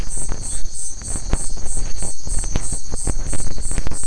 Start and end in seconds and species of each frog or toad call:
0.4	0.7	Adenomera marmorata
Brazil, 11:15pm

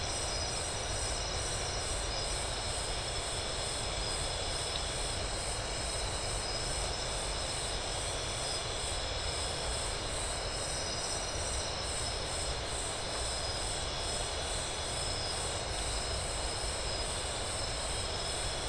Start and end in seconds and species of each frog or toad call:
none
Brazil, 10:00pm

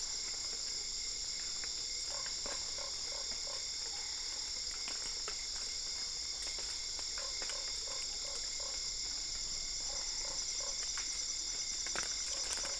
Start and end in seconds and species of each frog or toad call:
2.1	3.8	Boana lundii
7.0	10.9	Boana lundii
Brazil, 9:00pm

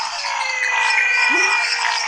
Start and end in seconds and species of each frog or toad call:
0.0	1.8	Dendropsophus minutus
0.0	1.8	Dendropsophus nanus
0.0	2.0	Scinax fuscovarius
0.2	2.0	Physalaemus albonotatus
1.0	1.8	Leptodactylus labyrinthicus
Brazil, 10:15pm

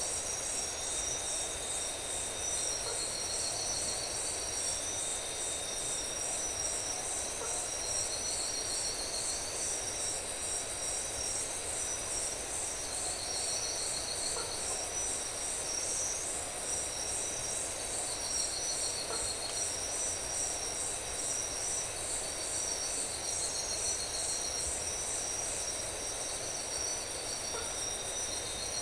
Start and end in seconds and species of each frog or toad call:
2.8	3.1	Boana faber
7.3	7.8	Boana faber
14.3	14.7	Boana faber
19.0	19.3	Boana faber
27.5	27.8	Boana faber
Brazil, 3:00am

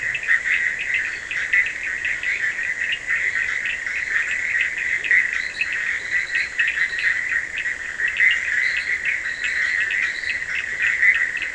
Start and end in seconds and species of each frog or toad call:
0.0	11.5	Boana bischoffi
0.0	11.5	Boana faber
0.0	11.5	Scinax perereca
0.0	11.5	Sphaenorhynchus surdus
0.9	1.4	Boana leptolineata
5.1	7.3	Boana leptolineata
8.6	10.7	Boana leptolineata
Brazil, 1:30am

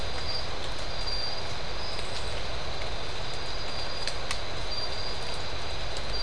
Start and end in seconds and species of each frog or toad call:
none
Brazil, 4:30am

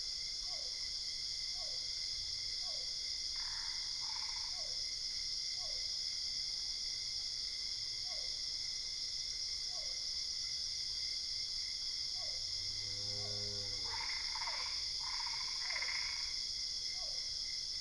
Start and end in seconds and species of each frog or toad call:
0.4	3.2	Physalaemus cuvieri
3.2	4.7	Boana albopunctata
4.3	6.2	Physalaemus cuvieri
7.9	10.2	Physalaemus cuvieri
12.0	12.8	Physalaemus cuvieri
13.6	16.8	Boana albopunctata
14.4	17.7	Physalaemus cuvieri
Brazil, 2:00am

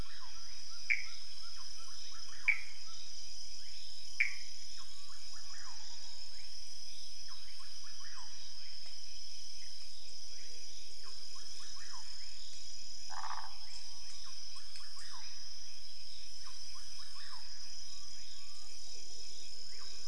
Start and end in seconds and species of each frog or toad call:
0.0	20.0	Leptodactylus fuscus
0.9	1.2	Pithecopus azureus
2.4	2.8	Pithecopus azureus
4.1	4.4	Pithecopus azureus
13.0	13.5	Phyllomedusa sauvagii
Brazil, 12:30am

